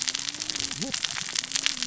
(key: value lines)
label: biophony, cascading saw
recorder: SoundTrap 600 or HydroMoth